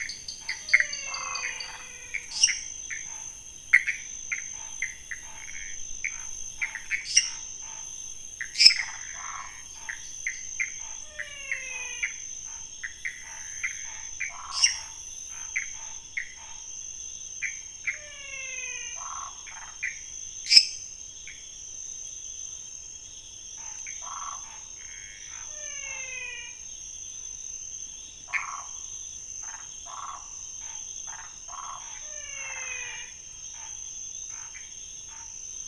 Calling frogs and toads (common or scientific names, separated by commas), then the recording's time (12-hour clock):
dwarf tree frog, Pithecopus azureus, menwig frog, waxy monkey tree frog, lesser tree frog, Scinax fuscovarius
11:30pm